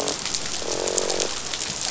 {"label": "biophony, croak", "recorder": "SoundTrap 500"}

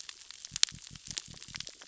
{"label": "biophony", "recorder": "SoundTrap 600 or HydroMoth"}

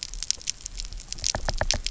{"label": "biophony, knock", "recorder": "SoundTrap 300"}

